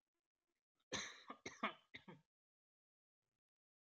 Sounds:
Cough